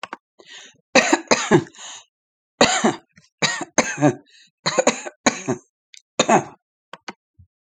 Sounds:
Cough